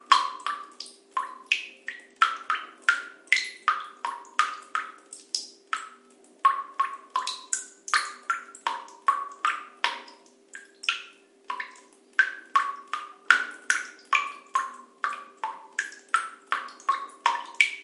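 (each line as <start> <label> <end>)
0.0 Water drips slowly from a faucet in a regular pattern. 17.8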